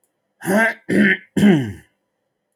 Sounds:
Throat clearing